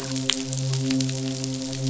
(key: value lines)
label: biophony, midshipman
recorder: SoundTrap 500